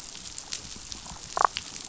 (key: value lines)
label: biophony, damselfish
recorder: SoundTrap 500